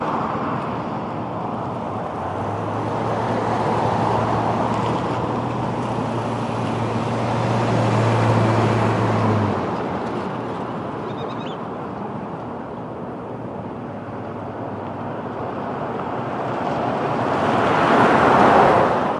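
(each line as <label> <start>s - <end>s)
Continuous ambient road traffic noise with periodically passing vehicles producing steady hums and intermittent engine sounds. 0.0s - 11.0s
A bird chirps with a short, melodic, bright, and clear tone. 11.0s - 11.8s
Continuous ambient road traffic noise with periodically passing vehicles producing steady hums and intermittent engine sounds. 11.8s - 19.2s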